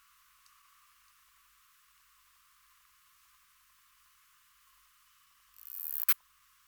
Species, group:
Poecilimon nobilis, Orthoptera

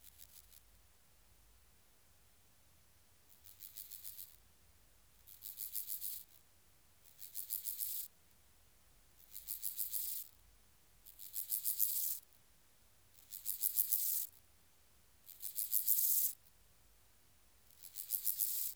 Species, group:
Chorthippus dorsatus, Orthoptera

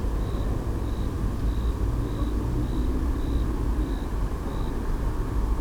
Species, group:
Eumodicogryllus bordigalensis, Orthoptera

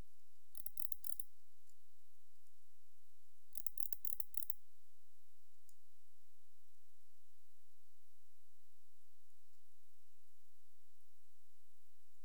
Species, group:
Barbitistes yersini, Orthoptera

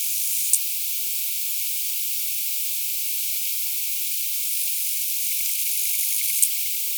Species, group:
Acrometopa macropoda, Orthoptera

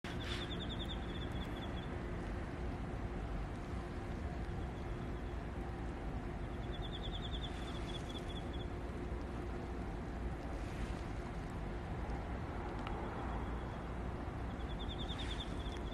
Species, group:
Teleogryllus emma, Orthoptera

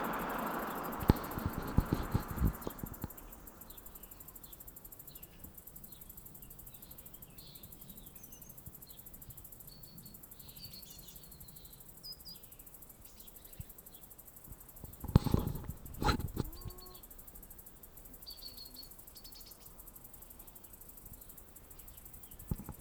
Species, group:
Tettigettalna argentata, Cicadidae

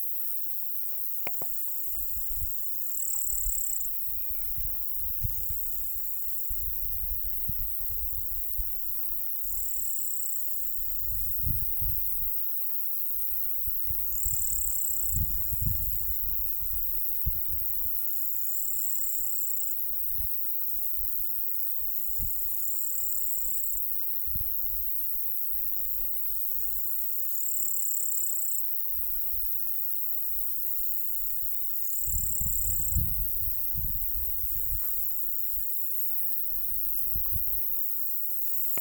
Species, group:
Pholidoptera littoralis, Orthoptera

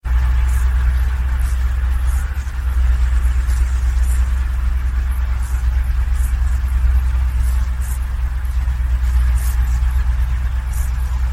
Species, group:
Chorthippus brunneus, Orthoptera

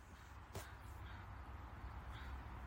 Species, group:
Gryllus pennsylvanicus, Orthoptera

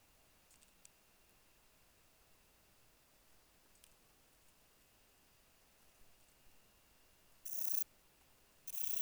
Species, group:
Rhacocleis germanica, Orthoptera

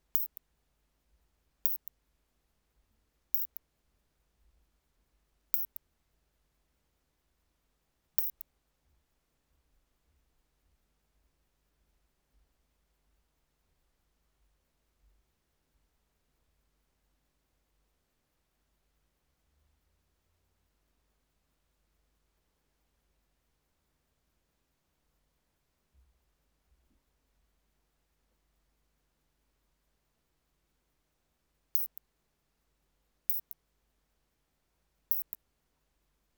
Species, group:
Isophya lemnotica, Orthoptera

